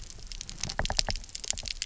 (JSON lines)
{"label": "biophony, knock", "recorder": "SoundTrap 300"}